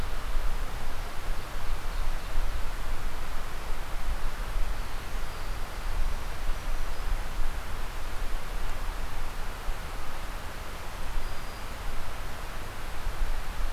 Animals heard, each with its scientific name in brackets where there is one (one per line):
Black-throated Green Warbler (Setophaga virens)